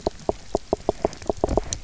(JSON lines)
{"label": "biophony, knock", "recorder": "SoundTrap 300"}